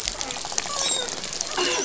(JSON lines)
{"label": "biophony", "recorder": "SoundTrap 500"}
{"label": "biophony, dolphin", "recorder": "SoundTrap 500"}